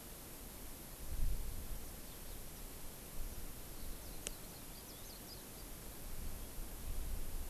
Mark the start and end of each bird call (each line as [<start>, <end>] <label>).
[3.70, 5.70] Warbling White-eye (Zosterops japonicus)